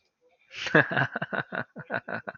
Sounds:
Laughter